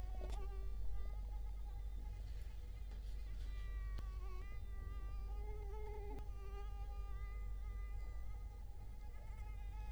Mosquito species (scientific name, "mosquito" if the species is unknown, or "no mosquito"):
Culex quinquefasciatus